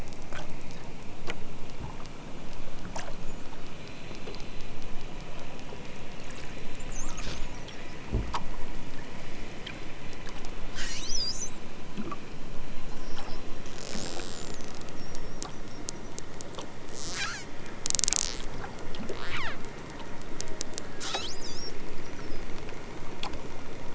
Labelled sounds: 10.7	11.6	killer whale, southern Alaska resident, 1.2 to 8.0 kHz
16.9	17.5	killer whale, southern Alaska resident, 0.64 to 8.0 kHz
19.1	19.7	killer whale, southern Alaska resident, 0.83 to 8.0 kHz
20.9	21.7	killer whale, southern Alaska resident, 0.78 to 8.0 kHz

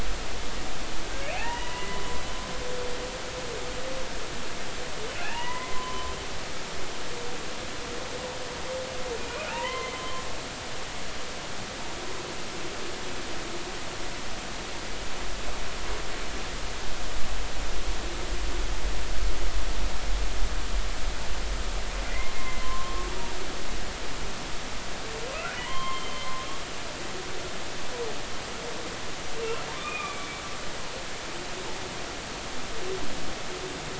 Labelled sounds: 1.2	2.0	humpback whale, 0.80 to 3.0 kHz
5.2	6.1	humpback whale, 0.86 to 3.0 kHz
9.2	10.2	humpback whale, 0.83 to 2.9 kHz
22.3	23.1	humpback whale, 0.99 to 2.2 kHz
25.6	26.3	humpback whale, 0.90 to 3.3 kHz
29.7	30.4	humpback whale, 1.1 to 2.6 kHz

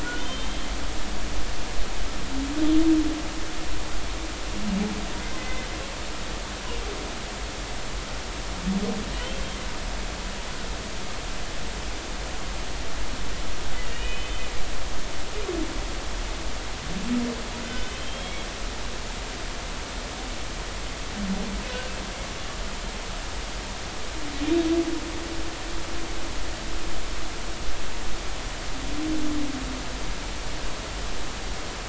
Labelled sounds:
0.0	0.7	humpback whale, 1.4 to 3.7 kHz
5.4	5.7	humpback whale, 2.0 to 2.1 kHz
9.1	9.4	humpback whale, 2.8 to 3.3 kHz
13.8	14.4	humpback whale, 2.3 to 3.1 kHz
17.6	18.5	humpback whale, 1.5 to 3.4 kHz

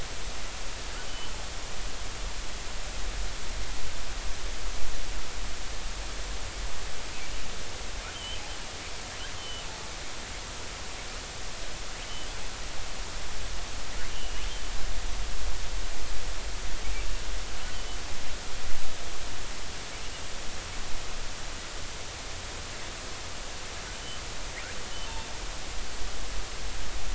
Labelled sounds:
1.1	1.3	killer whale, southern resident, J clan, L pod, call S02iii, 2.9 to 3.1 kHz
8.1	8.4	killer whale, southern resident, J clan, L pod, call S02iii, 2.9 to 3.2 kHz
9.4	9.6	killer whale, southern resident, J clan, L pod, call S02iii, 2.8 to 3.2 kHz
14.1	14.5	killer whale, southern resident, J clan, L pod, call S02iii, 2.8 to 3.1 kHz
23.9	24.2	killer whale, southern resident, J clan, L pod, call S02iii, 2.9 to 3.1 kHz

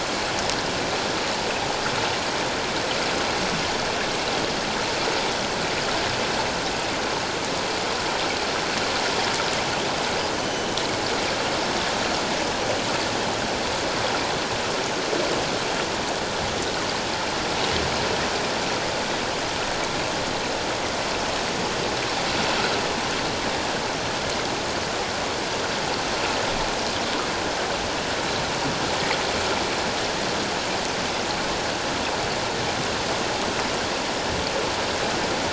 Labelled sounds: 10.3	10.7	killer whale, northern resident, G clan, 3.0 to 6.3 kHz

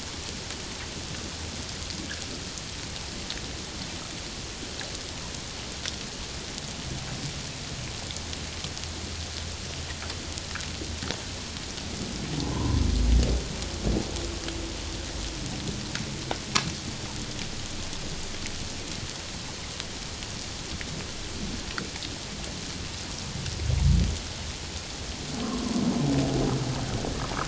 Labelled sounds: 12.4	12.8	humpback whale, 0.81 to 1.1 kHz
25.4	25.8	humpback whale, 0.94 to 1.2 kHz

